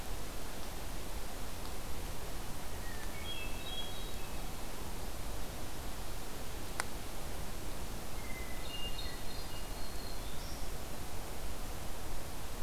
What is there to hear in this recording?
Hermit Thrush, Black-throated Green Warbler